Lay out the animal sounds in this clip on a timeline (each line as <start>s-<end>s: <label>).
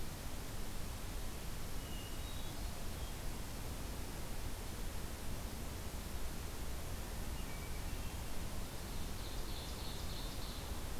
1.7s-2.9s: Hermit Thrush (Catharus guttatus)
7.2s-8.3s: Hermit Thrush (Catharus guttatus)
8.8s-10.7s: Ovenbird (Seiurus aurocapilla)